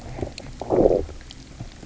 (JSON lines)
{"label": "biophony, low growl", "recorder": "SoundTrap 300"}